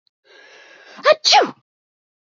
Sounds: Sneeze